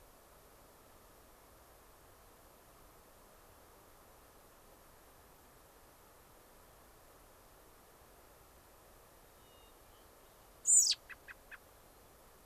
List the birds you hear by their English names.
Hermit Thrush, American Robin